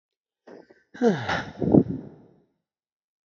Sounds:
Sigh